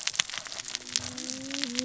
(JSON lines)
{"label": "biophony, cascading saw", "recorder": "SoundTrap 600 or HydroMoth"}